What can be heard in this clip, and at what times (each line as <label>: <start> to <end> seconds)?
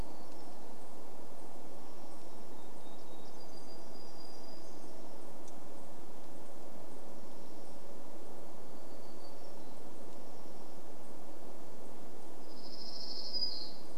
warbler song: 0 to 6 seconds
unidentified sound: 6 to 8 seconds
warbler song: 8 to 10 seconds
unidentified sound: 10 to 12 seconds
warbler song: 12 to 14 seconds